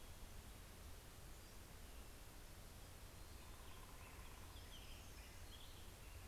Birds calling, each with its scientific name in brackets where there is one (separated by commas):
Hermit Warbler (Setophaga occidentalis), Black-headed Grosbeak (Pheucticus melanocephalus)